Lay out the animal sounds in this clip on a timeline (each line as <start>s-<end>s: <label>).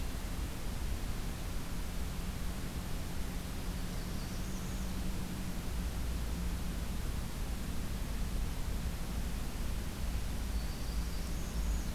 3.6s-5.0s: Northern Parula (Setophaga americana)
10.3s-11.0s: Black-throated Green Warbler (Setophaga virens)
10.8s-11.9s: Northern Parula (Setophaga americana)